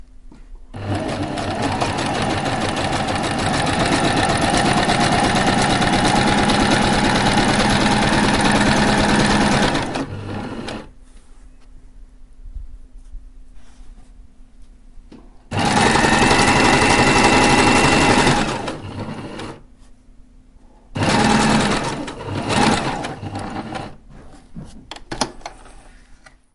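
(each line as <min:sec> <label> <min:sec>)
0:00.0 An intense sewing machine sound. 0:11.4
0:15.3 A sewing machine is running. 0:19.9
0:20.9 A sewing machine sound fading away. 0:24.4
0:24.9 The sound of a sewing machine stopping. 0:25.8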